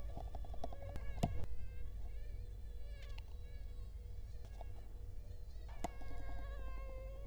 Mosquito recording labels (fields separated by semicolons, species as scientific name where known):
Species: Culex quinquefasciatus; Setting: cup